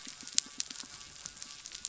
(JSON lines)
{"label": "biophony", "recorder": "SoundTrap 300"}
{"label": "anthrophony, boat engine", "recorder": "SoundTrap 300"}